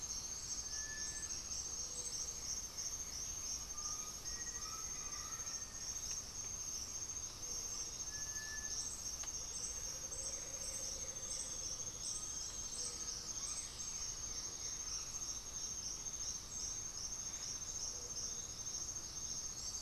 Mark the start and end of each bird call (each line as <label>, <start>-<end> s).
Black-throated Antbird (Myrmophylax atrothorax), 0.0-1.1 s
Gray-fronted Dove (Leptotila rufaxilla), 0.0-19.8 s
Cinereous Tinamou (Crypturellus cinereus), 0.5-1.4 s
Blue-gray Saltator (Saltator coerulescens), 1.9-4.0 s
Undulated Tinamou (Crypturellus undulatus), 3.6-5.6 s
Black-faced Antthrush (Formicarius analis), 4.1-6.2 s
Cinereous Tinamou (Crypturellus cinereus), 8.0-8.9 s
Amazonian Motmot (Momotus momota), 9.2-12.0 s
Blue-gray Saltator (Saltator coerulescens), 10.1-11.6 s
Chestnut-winged Foliage-gleaner (Dendroma erythroptera), 10.7-12.9 s
Undulated Tinamou (Crypturellus undulatus), 11.6-14.0 s
Blue-gray Saltator (Saltator coerulescens), 12.5-15.2 s
Red-bellied Macaw (Orthopsittaca manilatus), 13.5-15.7 s